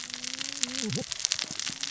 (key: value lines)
label: biophony, cascading saw
recorder: SoundTrap 600 or HydroMoth